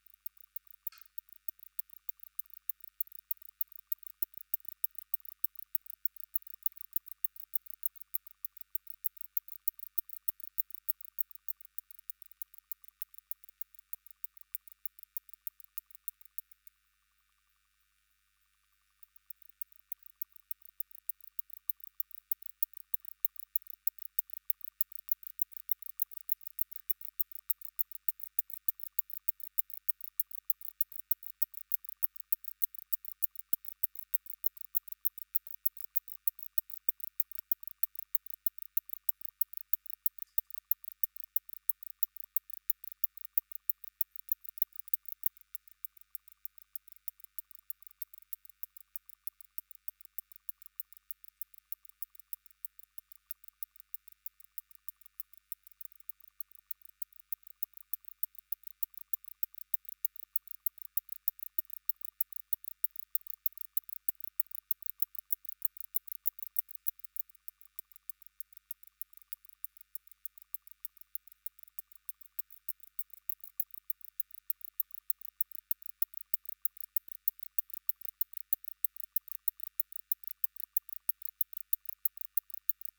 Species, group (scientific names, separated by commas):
Barbitistes kaltenbachi, Orthoptera